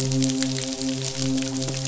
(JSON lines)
{"label": "biophony, midshipman", "recorder": "SoundTrap 500"}